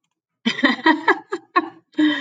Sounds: Laughter